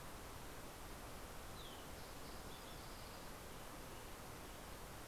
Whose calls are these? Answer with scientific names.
Passerella iliaca